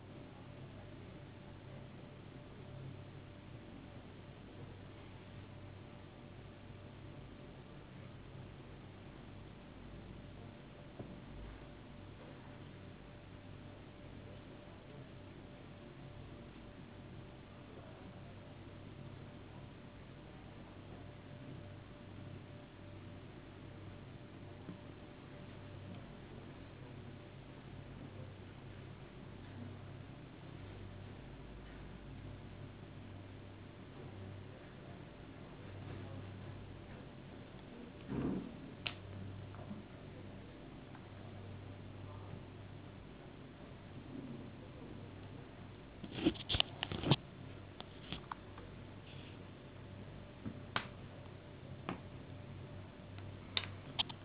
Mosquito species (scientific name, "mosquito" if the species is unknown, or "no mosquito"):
no mosquito